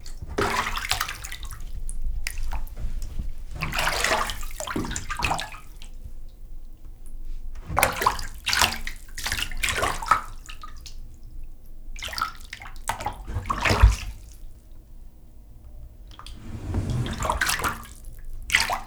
What is moving around?
water